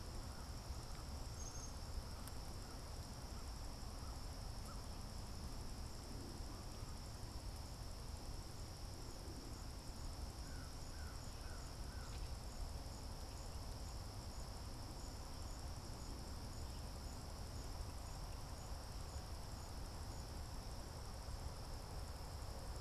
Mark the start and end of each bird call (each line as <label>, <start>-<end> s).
American Crow (Corvus brachyrhynchos), 0.0-6.9 s
Black-capped Chickadee (Poecile atricapillus), 1.0-2.1 s
American Crow (Corvus brachyrhynchos), 10.3-12.5 s